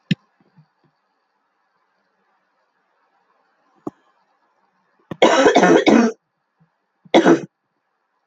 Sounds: Cough